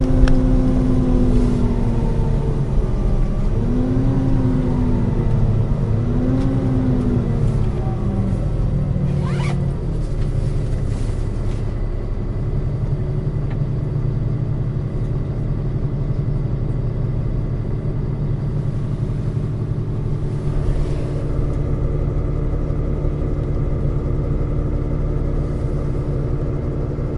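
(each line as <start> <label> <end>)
0.0 A bus driving. 27.2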